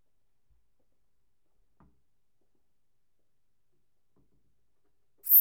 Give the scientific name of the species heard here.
Eupholidoptera latens